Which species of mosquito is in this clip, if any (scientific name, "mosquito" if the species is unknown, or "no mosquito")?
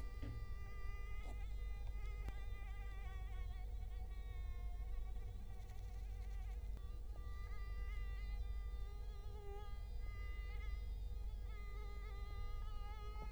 Culex quinquefasciatus